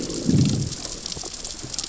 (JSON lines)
{"label": "biophony, growl", "recorder": "SoundTrap 600 or HydroMoth"}